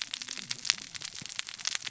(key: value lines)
label: biophony, cascading saw
recorder: SoundTrap 600 or HydroMoth